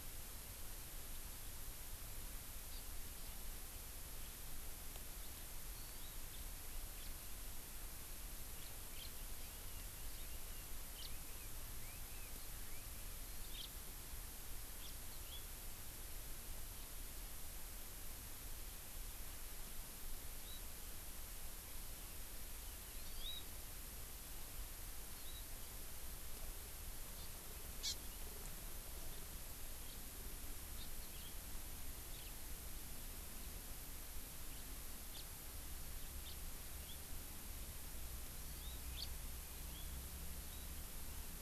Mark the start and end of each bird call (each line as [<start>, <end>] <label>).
[2.67, 2.88] Hawaii Amakihi (Chlorodrepanis virens)
[5.78, 6.17] Hawaii Amakihi (Chlorodrepanis virens)
[6.28, 6.38] House Finch (Haemorhous mexicanus)
[6.97, 7.08] House Finch (Haemorhous mexicanus)
[8.57, 9.07] House Finch (Haemorhous mexicanus)
[9.18, 12.97] Chinese Hwamei (Garrulax canorus)
[10.97, 11.07] House Finch (Haemorhous mexicanus)
[13.47, 13.68] House Finch (Haemorhous mexicanus)
[14.78, 15.38] House Finch (Haemorhous mexicanus)
[22.98, 23.38] Hawaii Amakihi (Chlorodrepanis virens)
[27.18, 27.27] Hawaii Amakihi (Chlorodrepanis virens)
[27.77, 27.98] Hawaii Amakihi (Chlorodrepanis virens)
[29.77, 29.98] House Finch (Haemorhous mexicanus)
[30.77, 30.88] Hawaii Amakihi (Chlorodrepanis virens)
[31.07, 31.27] House Finch (Haemorhous mexicanus)
[32.08, 32.27] House Finch (Haemorhous mexicanus)
[35.17, 35.27] House Finch (Haemorhous mexicanus)
[36.17, 36.38] House Finch (Haemorhous mexicanus)
[36.67, 36.98] House Finch (Haemorhous mexicanus)
[38.38, 38.77] Hawaii Amakihi (Chlorodrepanis virens)
[38.88, 39.08] House Finch (Haemorhous mexicanus)
[39.58, 39.88] House Finch (Haemorhous mexicanus)